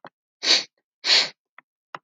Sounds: Sniff